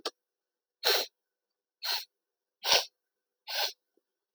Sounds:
Sniff